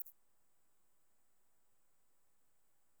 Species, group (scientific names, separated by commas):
Thyreonotus corsicus, Orthoptera